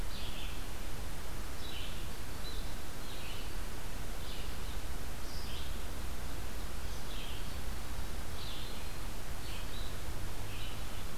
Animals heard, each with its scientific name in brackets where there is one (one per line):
Red-eyed Vireo (Vireo olivaceus)